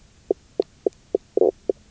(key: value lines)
label: biophony, knock croak
recorder: SoundTrap 300